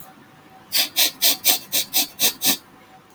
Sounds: Sniff